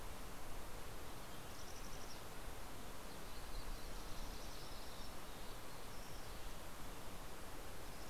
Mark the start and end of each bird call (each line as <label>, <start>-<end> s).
Mountain Chickadee (Poecile gambeli), 0.0-5.4 s
Yellow-rumped Warbler (Setophaga coronata), 2.9-6.4 s